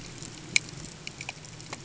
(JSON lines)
{"label": "ambient", "recorder": "HydroMoth"}